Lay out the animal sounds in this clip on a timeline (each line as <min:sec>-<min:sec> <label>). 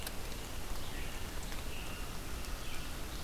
0:00.0-0:03.2 Red-eyed Vireo (Vireo olivaceus)
0:00.8-0:02.2 American Robin (Turdus migratorius)